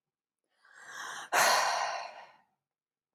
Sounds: Sigh